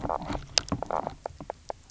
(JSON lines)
{"label": "biophony, knock croak", "recorder": "SoundTrap 300"}